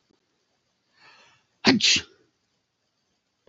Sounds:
Sneeze